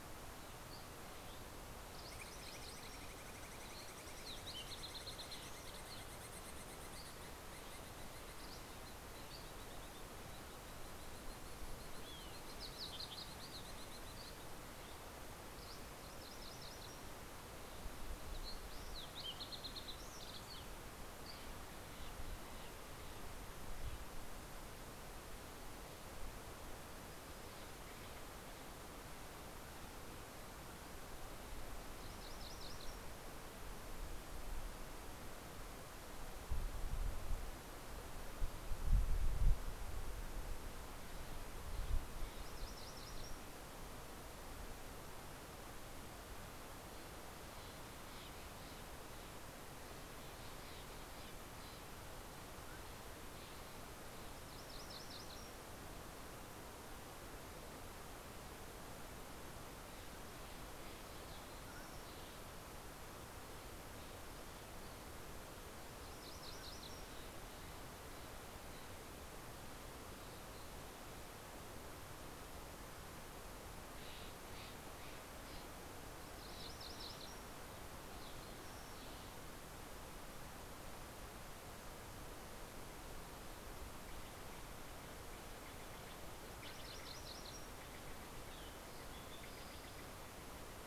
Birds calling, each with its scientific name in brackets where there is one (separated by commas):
Steller's Jay (Cyanocitta stelleri), MacGillivray's Warbler (Geothlypis tolmiei), Fox Sparrow (Passerella iliaca), Dusky Flycatcher (Empidonax oberholseri)